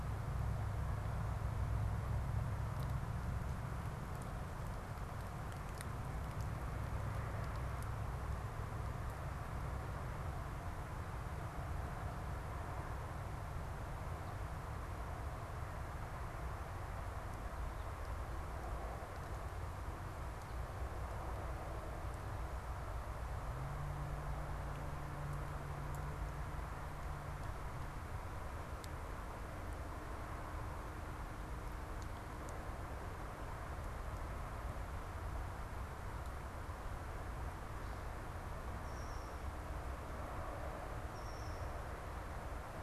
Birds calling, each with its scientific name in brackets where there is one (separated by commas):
Red-winged Blackbird (Agelaius phoeniceus)